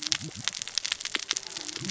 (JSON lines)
{"label": "biophony, cascading saw", "recorder": "SoundTrap 600 or HydroMoth"}